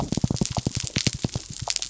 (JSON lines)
{"label": "biophony", "recorder": "SoundTrap 300"}